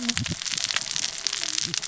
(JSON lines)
{"label": "biophony, cascading saw", "recorder": "SoundTrap 600 or HydroMoth"}